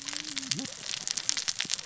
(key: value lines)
label: biophony, cascading saw
recorder: SoundTrap 600 or HydroMoth